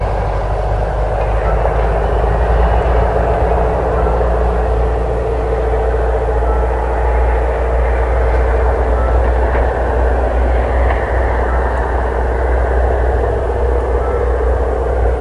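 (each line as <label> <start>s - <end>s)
A car engine hums softly and steadily. 0.0s - 15.2s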